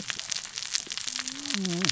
{"label": "biophony, cascading saw", "recorder": "SoundTrap 600 or HydroMoth"}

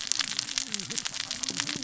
{"label": "biophony, cascading saw", "recorder": "SoundTrap 600 or HydroMoth"}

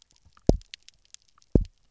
{"label": "biophony, double pulse", "recorder": "SoundTrap 300"}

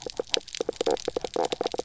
{"label": "biophony, knock croak", "recorder": "SoundTrap 300"}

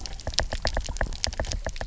{"label": "biophony, knock", "recorder": "SoundTrap 300"}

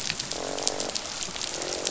{"label": "biophony, croak", "recorder": "SoundTrap 500"}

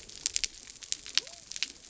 {"label": "biophony", "recorder": "SoundTrap 300"}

